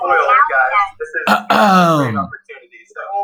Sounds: Throat clearing